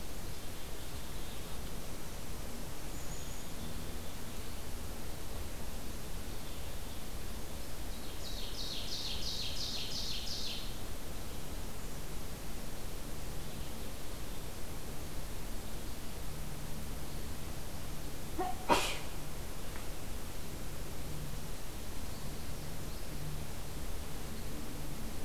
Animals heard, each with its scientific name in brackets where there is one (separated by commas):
Ovenbird (Seiurus aurocapilla), unidentified call, Black-capped Chickadee (Poecile atricapillus)